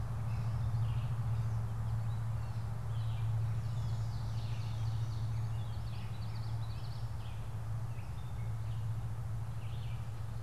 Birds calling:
Gray Catbird (Dumetella carolinensis), Ovenbird (Seiurus aurocapilla), Red-eyed Vireo (Vireo olivaceus), Common Yellowthroat (Geothlypis trichas)

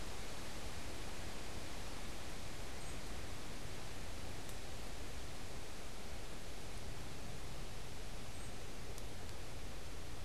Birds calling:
Northern Cardinal (Cardinalis cardinalis)

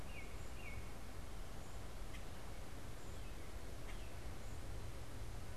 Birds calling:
American Robin (Turdus migratorius), Common Grackle (Quiscalus quiscula)

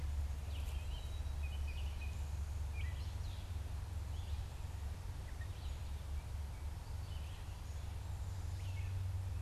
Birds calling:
Gray Catbird (Dumetella carolinensis), Red-eyed Vireo (Vireo olivaceus)

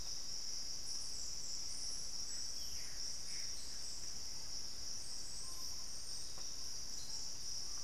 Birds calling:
Gray Antbird (Cercomacra cinerascens), Screaming Piha (Lipaugus vociferans)

